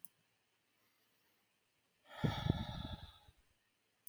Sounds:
Sigh